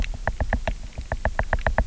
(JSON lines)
{"label": "biophony, knock", "recorder": "SoundTrap 300"}